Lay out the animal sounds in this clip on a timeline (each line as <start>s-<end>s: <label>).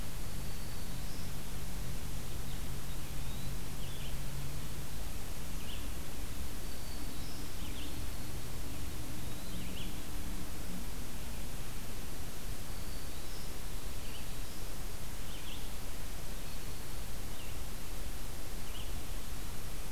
0.0s-10.0s: Red-eyed Vireo (Vireo olivaceus)
0.2s-1.3s: Black-throated Green Warbler (Setophaga virens)
2.7s-3.5s: Eastern Wood-Pewee (Contopus virens)
6.3s-7.7s: Black-throated Green Warbler (Setophaga virens)
12.2s-14.7s: Black-throated Green Warbler (Setophaga virens)
13.8s-19.2s: Red-eyed Vireo (Vireo olivaceus)